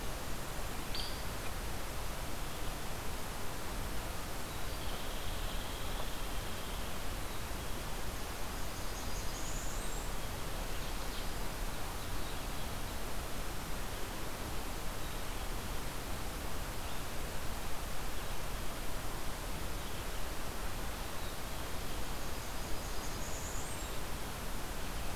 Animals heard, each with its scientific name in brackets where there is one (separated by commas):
Blackburnian Warbler (Setophaga fusca), Hairy Woodpecker (Dryobates villosus), Red-eyed Vireo (Vireo olivaceus)